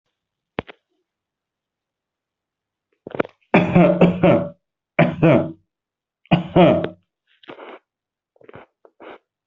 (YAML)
expert_labels:
- quality: good
  cough_type: dry
  dyspnea: false
  wheezing: false
  stridor: false
  choking: false
  congestion: false
  nothing: true
  diagnosis: upper respiratory tract infection
  severity: unknown
age: 23
gender: female
respiratory_condition: false
fever_muscle_pain: false
status: COVID-19